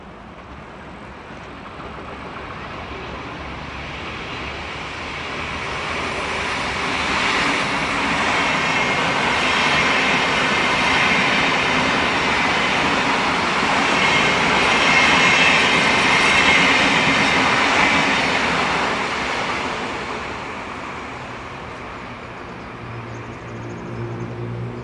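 An electric train approaches, its hum gradually increasing in volume and pitch. 0.1 - 5.7
An electric train rushes past with high-speed wind noise, metallic rumble, and motor whine. 5.8 - 20.2
Train noise fading into the distance. 20.4 - 24.8

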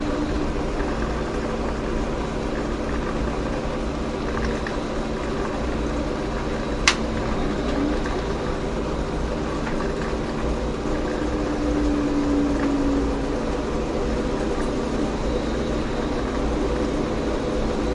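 A motor whirrs constantly. 0.0 - 17.9

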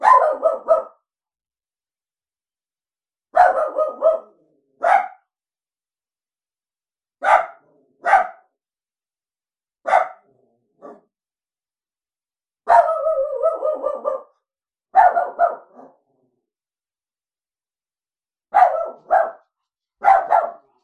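A dog barks loudly. 0.0 - 1.0
A dog barks loudly. 3.3 - 5.2
A dog barks loudly. 7.2 - 8.4
A dog barks loudly. 9.8 - 11.0
A dog barks loudly. 12.7 - 15.9
A dog barks loudly. 18.5 - 20.7

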